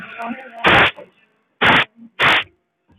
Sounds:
Sniff